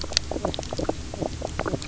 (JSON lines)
{"label": "biophony, knock croak", "recorder": "SoundTrap 300"}